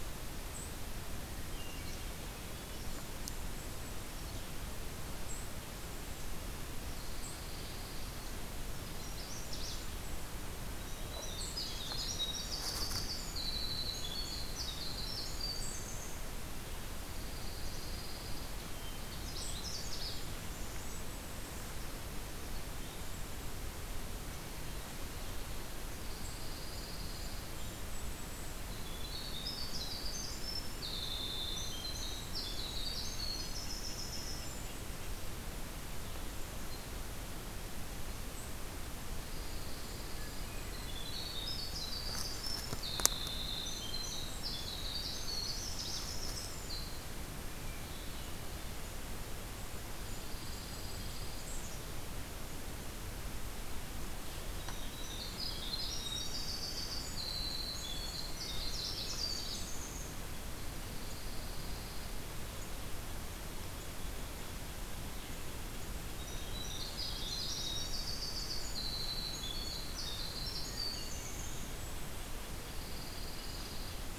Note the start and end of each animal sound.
1.1s-2.3s: Hermit Thrush (Catharus guttatus)
2.8s-4.1s: Golden-crowned Kinglet (Regulus satrapa)
6.9s-8.4s: Pine Warbler (Setophaga pinus)
8.9s-9.8s: Magnolia Warbler (Setophaga magnolia)
9.0s-10.4s: Golden-crowned Kinglet (Regulus satrapa)
10.9s-16.3s: Winter Wren (Troglodytes hiemalis)
17.0s-18.6s: Pine Warbler (Setophaga pinus)
19.0s-20.2s: Magnolia Warbler (Setophaga magnolia)
20.3s-21.8s: Golden-crowned Kinglet (Regulus satrapa)
25.9s-27.5s: Pine Warbler (Setophaga pinus)
26.1s-28.6s: Golden-crowned Kinglet (Regulus satrapa)
28.7s-34.9s: Winter Wren (Troglodytes hiemalis)
39.2s-40.6s: Pine Warbler (Setophaga pinus)
39.6s-41.4s: Golden-crowned Kinglet (Regulus satrapa)
39.9s-40.9s: Hermit Thrush (Catharus guttatus)
40.6s-47.0s: Winter Wren (Troglodytes hiemalis)
47.6s-48.8s: Hermit Thrush (Catharus guttatus)
50.0s-51.5s: Pine Warbler (Setophaga pinus)
50.1s-51.4s: Golden-crowned Kinglet (Regulus satrapa)
54.3s-60.3s: Winter Wren (Troglodytes hiemalis)
58.4s-59.4s: Hermit Thrush (Catharus guttatus)
60.6s-62.2s: Pine Warbler (Setophaga pinus)
66.0s-72.0s: Winter Wren (Troglodytes hiemalis)
70.9s-72.6s: Golden-crowned Kinglet (Regulus satrapa)
72.6s-74.2s: Pine Warbler (Setophaga pinus)

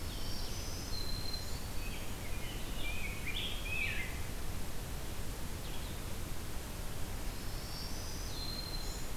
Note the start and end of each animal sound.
0.0s-1.7s: Black-throated Green Warbler (Setophaga virens)
0.0s-6.2s: Blue-headed Vireo (Vireo solitarius)
1.6s-4.1s: Rose-breasted Grosbeak (Pheucticus ludovicianus)
7.2s-9.2s: Black-throated Green Warbler (Setophaga virens)

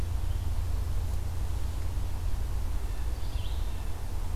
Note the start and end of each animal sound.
0.0s-3.8s: Red-eyed Vireo (Vireo olivaceus)

